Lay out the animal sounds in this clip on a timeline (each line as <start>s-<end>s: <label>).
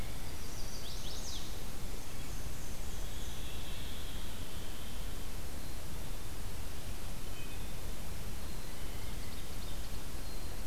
0.1s-1.6s: Chestnut-sided Warbler (Setophaga pensylvanica)
1.7s-3.6s: Black-and-white Warbler (Mniotilta varia)
2.9s-5.2s: Pine Warbler (Setophaga pinus)
7.0s-7.9s: Red-breasted Nuthatch (Sitta canadensis)
8.4s-10.7s: Black-capped Chickadee (Poecile atricapillus)